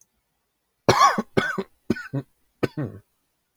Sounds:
Cough